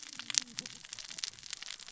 {"label": "biophony, cascading saw", "recorder": "SoundTrap 600 or HydroMoth"}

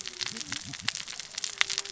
{"label": "biophony, cascading saw", "recorder": "SoundTrap 600 or HydroMoth"}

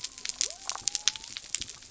{"label": "biophony", "recorder": "SoundTrap 300"}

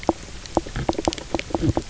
{"label": "biophony, knock croak", "recorder": "SoundTrap 300"}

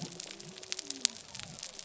{"label": "biophony", "recorder": "SoundTrap 300"}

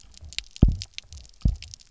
{"label": "biophony, double pulse", "recorder": "SoundTrap 300"}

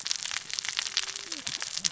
{"label": "biophony, cascading saw", "recorder": "SoundTrap 600 or HydroMoth"}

